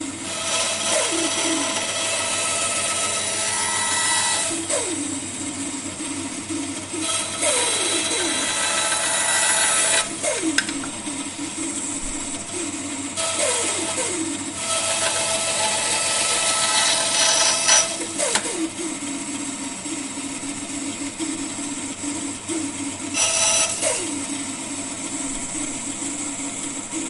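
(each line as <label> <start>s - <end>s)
A tool is sawing. 0.1s - 5.5s
A saw is running but not cutting. 5.6s - 6.9s
The sound of a saw sawing. 7.0s - 10.8s
A saw is running but not cutting. 10.9s - 13.1s
The sound of a saw sawing. 13.1s - 18.5s
A saw is running but not cutting. 18.6s - 22.8s
The sound of a saw sawing. 23.1s - 24.5s
A saw is running but not cutting. 24.7s - 27.1s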